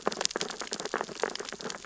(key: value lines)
label: biophony, sea urchins (Echinidae)
recorder: SoundTrap 600 or HydroMoth